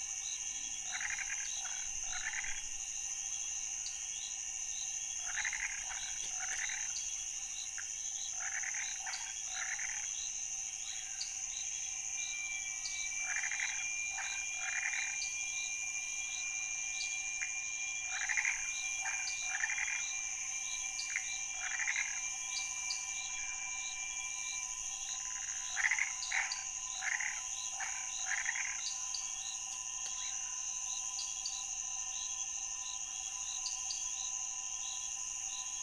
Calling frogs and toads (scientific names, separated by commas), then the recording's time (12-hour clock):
Boana raniceps, Dendropsophus nanus, Pithecopus azureus
2:00am